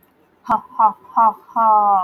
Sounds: Laughter